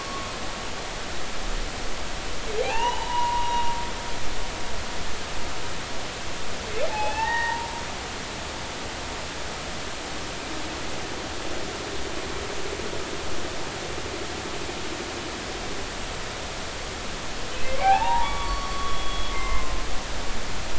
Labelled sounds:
2.6	3.7	humpback whale, 0.80 to 3.8 kHz
6.9	7.7	humpback whale, 0.80 to 2.8 kHz
17.8	20.0	humpback whale, 0.80 to 4.5 kHz

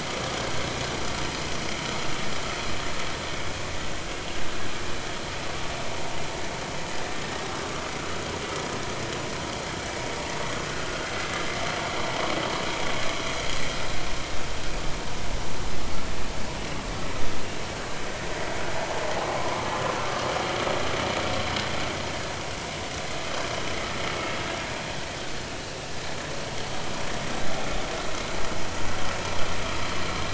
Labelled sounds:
19.4	20.2	vessel noise, 0.93 to 1.4 kHz

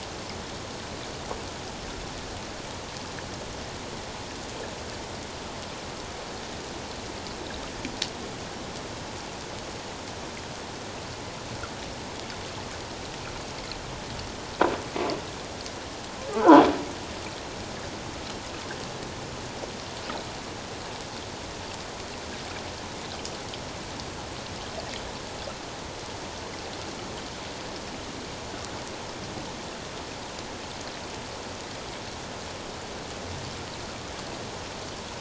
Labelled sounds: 16.3	16.6	croaking sound likely from a nearby submerged object, 0.78 to 1.6 kHz

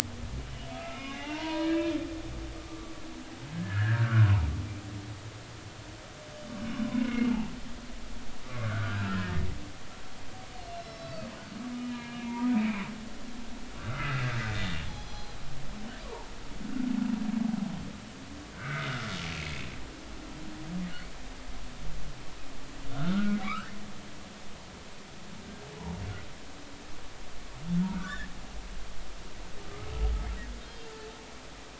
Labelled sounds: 0.5	1.9	humpback whale, 0.80 to 4.2 kHz
2.7	4.3	humpback whale, 1.1 to 1.9 kHz
6.6	7.4	humpback whale, 0.93 to 5.4 kHz
8.6	9.5	humpback whale, 1.2 to 1.9 kHz
10.8	12.8	humpback whale, 0.90 to 5.4 kHz
13.7	15.4	humpback whale, 0.80 to 4.2 kHz
16.0	16.3	humpback whale, 0.80 to 1.2 kHz
16.6	16.9	humpback whale, 1.4 to 1.5 kHz
18.5	19.7	humpback whale, 1.2 to 2.7 kHz
22.9	23.7	humpback whale, 1.1 to 2.7 kHz
27.8	28.3	humpback whale, 1.1 to 1.9 kHz
30.6	30.9	humpback whale, 3.1 to 3.3 kHz

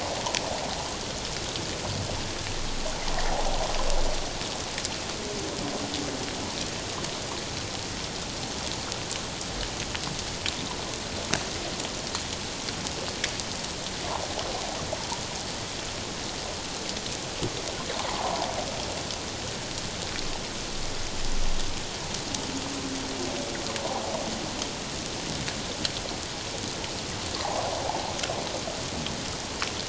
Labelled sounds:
18.1	18.5	water noise, 0.78 to 1.2 kHz
27.4	27.7	water noise, 0.78 to 1.2 kHz

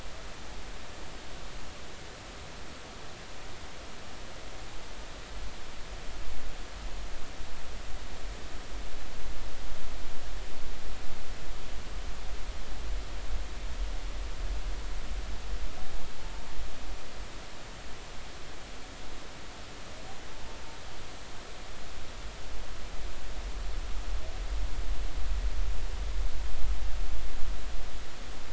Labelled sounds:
20.3	20.6	humpback whale, 0.86 to 1.0 kHz

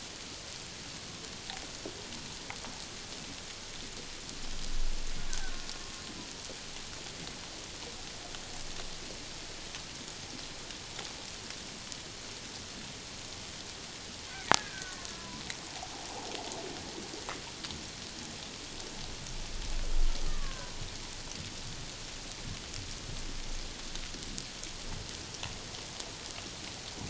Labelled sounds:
5.3	5.6	killer whale, Bigg's (transient), 1.4 to 1.7 kHz
14.5	15.4	killer whale, Bigg's (transient), 0.94 to 1.8 kHz
20.3	20.8	killer whale, Bigg's (transient), 0.91 to 1.7 kHz

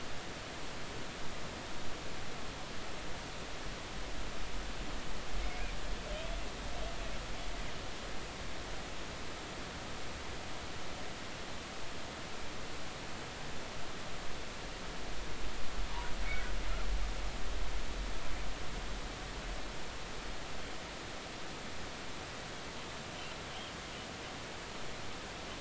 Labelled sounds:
5.4	5.7	humpback whale, 2.1 to 2.5 kHz

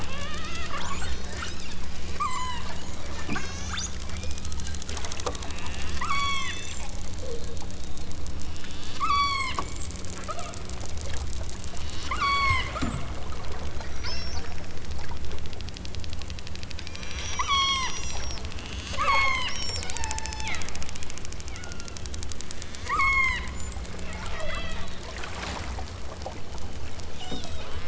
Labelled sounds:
0.0	0.7	killer whale, southern Alaska resident, 0.69 to 4.1 kHz
2.2	2.7	killer whale, southern Alaska resident, 0.55 to 7.9 kHz
3.3	4.0	killer whale, southern Alaska resident, 0.69 to 8.0 kHz
6.0	6.8	killer whale, southern Alaska resident, 0.64 to 7.0 kHz
8.4	9.6	killer whale, southern Alaska resident, 0.69 to 8.0 kHz
10.2	10.6	killer whale, southern Alaska resident, 0.28 to 2.7 kHz
12.0	13.1	killer whale, southern Alaska resident, 0.64 to 8.0 kHz
14.0	14.5	killer whale, southern Alaska resident, 0.51 to 8.0 kHz
16.8	18.4	killer whale, southern Alaska resident, 0.46 to 8.0 kHz
18.9	19.5	killer whale, southern Alaska resident, 0.55 to 8.0 kHz
19.9	20.6	killer whale, southern Alaska resident, 0.64 to 8.0 kHz
21.4	22.4	killer whale, southern Alaska resident, 1.1 to 4.3 kHz
22.8	23.5	killer whale, southern Alaska resident, 0.78 to 8.0 kHz
24.2	24.9	killer whale, southern Alaska resident, 0.46 to 5.5 kHz
27.2	27.7	killer whale, southern Alaska resident, 2.1 to 8.0 kHz

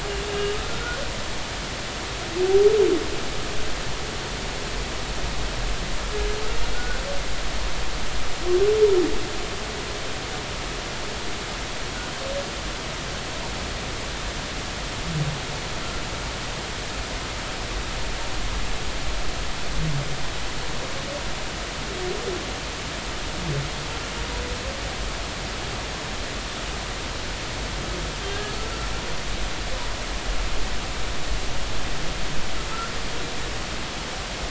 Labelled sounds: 0.3	1.0	humpback whale, 1.2 to 2.9 kHz
6.7	7.0	humpback whale, 1.4 to 1.6 kHz
28.3	28.5	humpback whale, 1.6 to 1.7 kHz

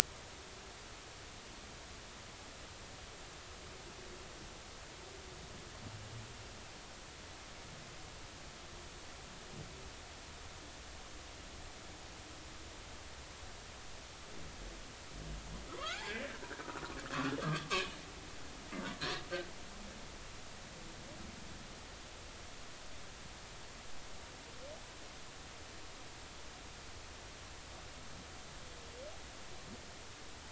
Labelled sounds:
15.7	16.4	humpback whale, 0.96 to 2.5 kHz
17.4	18.0	humpback whale, 1.0 to 3.2 kHz

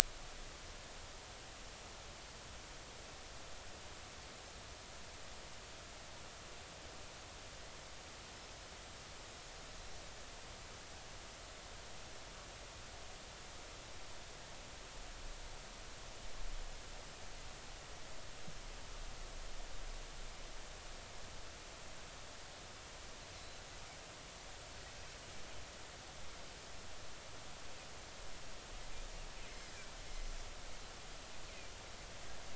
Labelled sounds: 23.4	23.6	Pacific white-sided dolphin, 3.9 to 4.1 kHz

